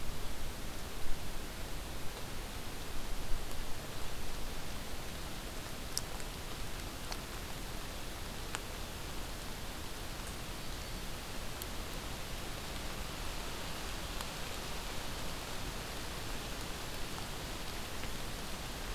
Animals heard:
forest ambience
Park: Acadia National Park